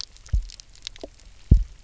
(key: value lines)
label: biophony, double pulse
recorder: SoundTrap 300